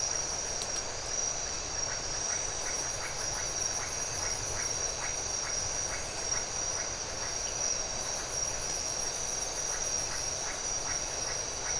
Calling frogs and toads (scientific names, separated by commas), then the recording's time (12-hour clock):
Leptodactylus notoaktites
4:15am